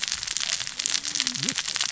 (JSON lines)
{"label": "biophony, cascading saw", "recorder": "SoundTrap 600 or HydroMoth"}